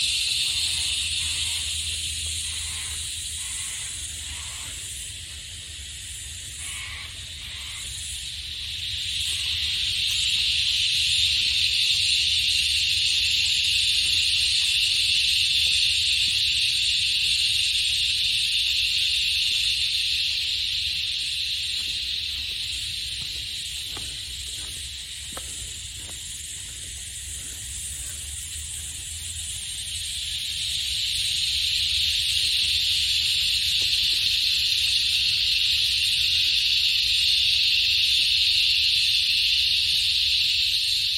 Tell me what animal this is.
Henicopsaltria eydouxii, a cicada